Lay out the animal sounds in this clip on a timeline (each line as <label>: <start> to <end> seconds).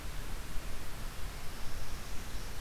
Northern Parula (Setophaga americana): 1.1 to 2.6 seconds